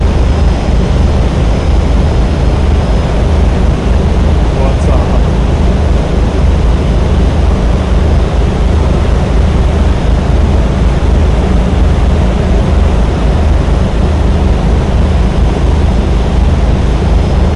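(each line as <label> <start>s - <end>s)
Loud ship engine running. 0.1s - 17.5s
A man is speaking. 4.4s - 6.0s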